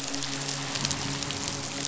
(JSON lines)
{"label": "biophony, midshipman", "recorder": "SoundTrap 500"}